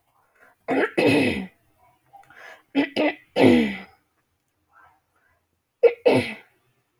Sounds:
Throat clearing